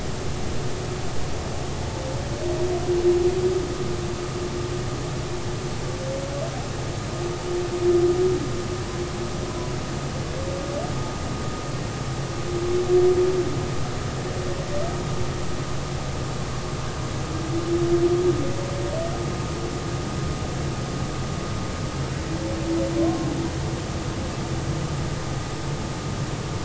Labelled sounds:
23.0	23.3	humpback whale, 0.99 to 1.1 kHz

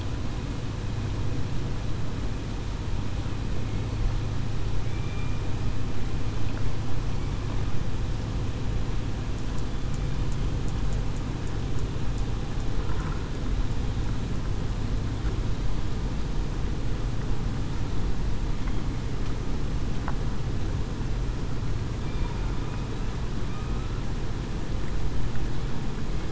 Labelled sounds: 4.9	5.4	killer whale, southern resident, 2.3 to 2.4 kHz

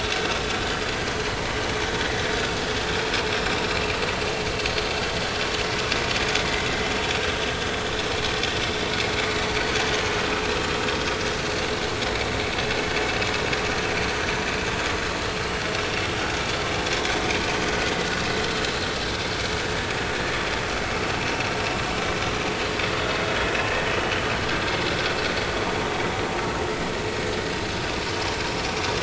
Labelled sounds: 4.5	4.8	vessel noise, 6.2 to 6.6 kHz

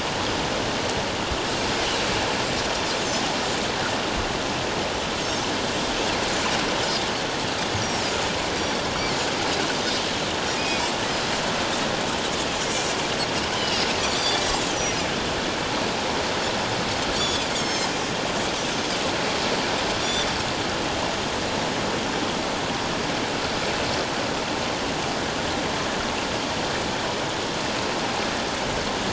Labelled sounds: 7.8	8.0	Pacific white-sided dolphin, 5.4 to 5.9 kHz
10.6	10.9	Pacific white-sided dolphin, 2.2 to 2.6 kHz
12.6	14.4	Pacific white-sided dolphin, 2.8 to 6.1 kHz
17.2	17.9	Pacific white-sided dolphin, 3.1 to 7.6 kHz
20.0	20.3	Pacific white-sided dolphin, 3.4 to 3.6 kHz

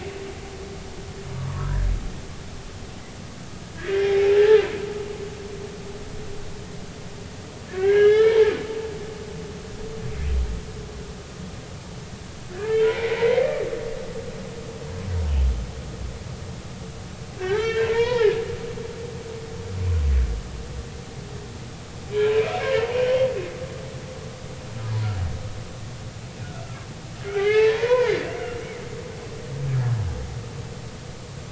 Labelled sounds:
1.5	1.8	humpback whale, 0.90 to 1.2 kHz
3.8	4.6	humpback whale, 1.5 to 3.4 kHz
7.7	8.5	humpback whale, 0.83 to 4.2 kHz
12.5	13.5	humpback whale, 1.5 to 2.4 kHz
17.4	18.4	humpback whale, 0.83 to 4.1 kHz
27.2	28.1	humpback whale, 0.83 to 4.0 kHz

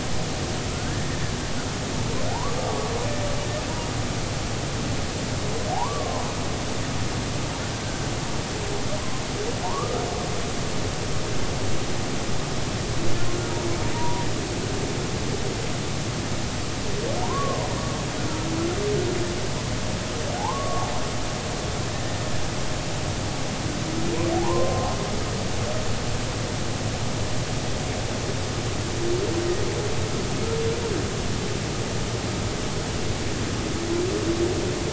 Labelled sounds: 0.7	1.0	humpback whale, 1.2 to 1.8 kHz
2.3	2.9	humpback whale, 0.80 to 1.2 kHz
5.7	6.3	humpback whale, 0.80 to 1.2 kHz
9.6	10.0	humpback whale, 0.83 to 1.4 kHz
13.9	14.3	humpback whale, 0.90 to 1.0 kHz
17.2	17.6	humpback whale, 0.86 to 1.2 kHz
20.4	20.9	humpback whale, 0.80 to 1.2 kHz
24.4	24.9	humpback whale, 0.80 to 1.1 kHz

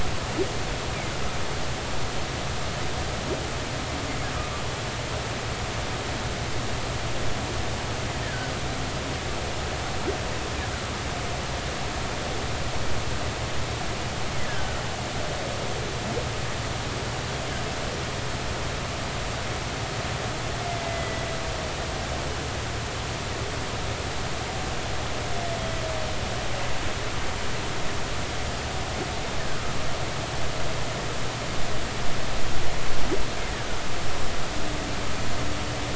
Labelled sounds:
8.2	8.5	humpback whale, 1.4 to 1.9 kHz
14.4	14.8	humpback whale, 1.4 to 1.8 kHz
20.7	21.3	humpback whale, 1.9 to 2.1 kHz

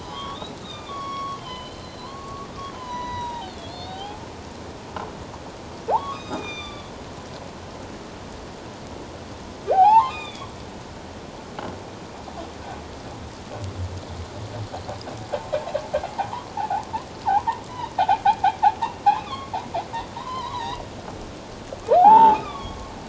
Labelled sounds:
0.0	4.2	humpback whale, 0.78 to 6.0 kHz
5.9	6.9	humpback whale, 0.78 to 7.4 kHz
9.7	10.5	humpback whale, 0.78 to 3.9 kHz
16.2	16.9	humpback whale, 0.78 to 1.2 kHz
17.2	18.2	humpback whale, 0.78 to 2.6 kHz
18.8	19.6	humpback whale, 1.0 to 2.9 kHz
20.2	20.8	humpback whale, 0.78 to 4.0 kHz
22.0	22.9	humpback whale, 0.78 to 3.7 kHz

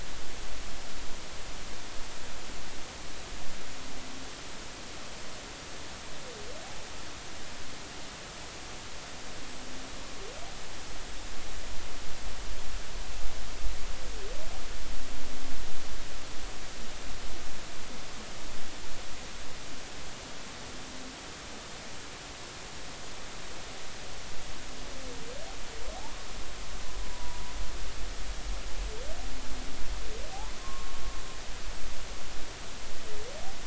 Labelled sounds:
27.0	27.4	humpback whale, 0.93 to 1.1 kHz
30.6	31.0	humpback whale, 1.0 to 1.1 kHz

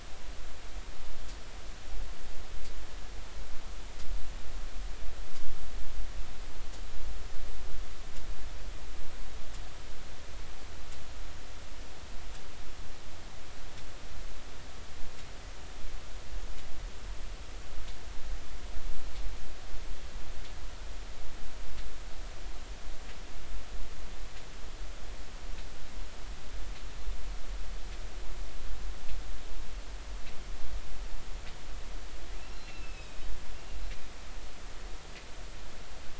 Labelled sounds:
32.5	33.2	killer whale, northern resident, A clan, AA subclan, A05 pod, call N04, 2.5 to 4.2 kHz

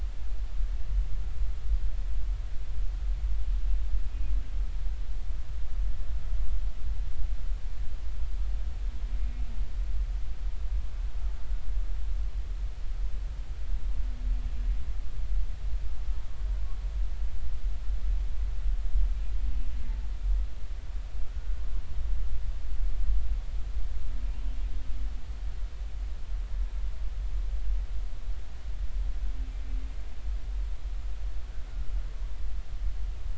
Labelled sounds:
4.1	4.3	humpback whale, 2.4 to 2.5 kHz

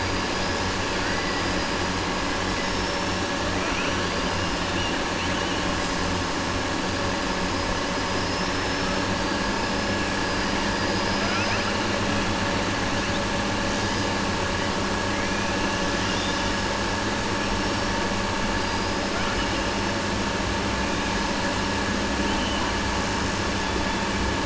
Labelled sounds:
2.4	3.1	killer whale, southern resident, 4.7 to 5.5 kHz
10.7	11.7	killer whale, southern resident, 0.66 to 6.0 kHz

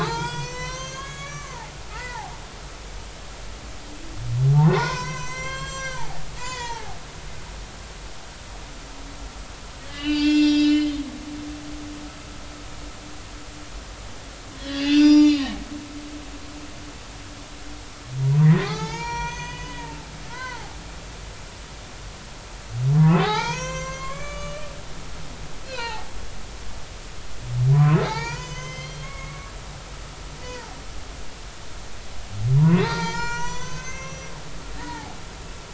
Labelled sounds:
0.0	2.3	humpback whale, 0.80 to 7.5 kHz
4.6	7.0	humpback whale, 0.80 to 7.8 kHz
9.9	10.9	humpback whale, 1.4 to 7.2 kHz
11.6	11.9	humpback whale, 4.1 to 4.3 kHz
14.6	15.5	humpback whale, 0.86 to 6.9 kHz
18.4	20.7	humpback whale, 0.80 to 7.1 kHz
23.0	24.6	humpback whale, 0.80 to 7.6 kHz
25.6	26.1	humpback whale, 0.80 to 3.2 kHz
27.7	29.5	humpback whale, 0.80 to 6.7 kHz
30.4	30.8	humpback whale, 0.80 to 2.0 kHz
32.6	34.3	humpback whale, 0.83 to 7.5 kHz
34.8	35.2	humpback whale, 0.80 to 2.0 kHz

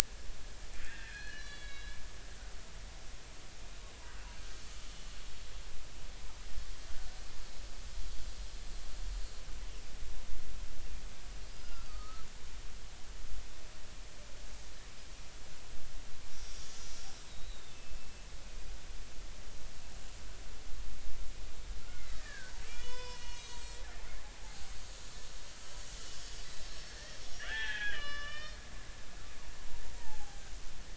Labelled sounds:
0.8	2.0	killer whale, Bigg's (transient), 1.3 to 5.1 kHz
11.5	12.2	killer whale, Bigg's (transient), 1.2 to 5.0 kHz
17.3	18.1	killer whale, Bigg's (transient), 2.6 to 4.0 kHz
21.9	23.8	killer whale, Bigg's (transient), 0.93 to 6.4 kHz
24.4	24.7	killer whale, Bigg's (transient), 0.80 to 0.93 kHz
26.7	28.6	killer whale, Bigg's (transient), 0.80 to 5.6 kHz
29.0	30.4	killer whale, Bigg's (transient), 0.80 to 5.3 kHz

